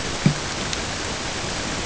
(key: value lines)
label: ambient
recorder: HydroMoth